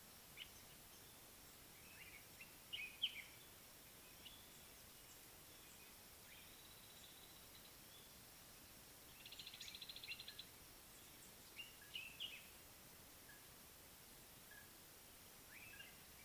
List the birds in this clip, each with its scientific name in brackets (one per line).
African Thrush (Turdus pelios)
Common Bulbul (Pycnonotus barbatus)
Red-fronted Tinkerbird (Pogoniulus pusillus)